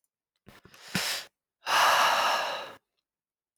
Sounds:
Sigh